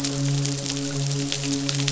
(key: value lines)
label: biophony, midshipman
recorder: SoundTrap 500